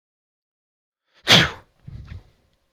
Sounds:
Sneeze